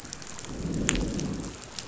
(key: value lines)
label: biophony, growl
recorder: SoundTrap 500